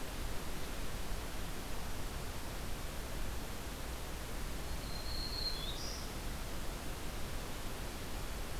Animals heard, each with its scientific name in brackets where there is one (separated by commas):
Black-throated Green Warbler (Setophaga virens)